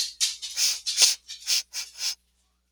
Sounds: Sniff